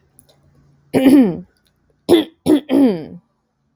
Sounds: Throat clearing